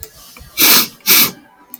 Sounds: Sniff